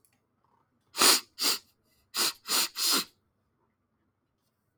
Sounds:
Sniff